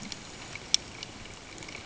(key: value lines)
label: ambient
recorder: HydroMoth